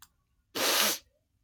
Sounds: Sniff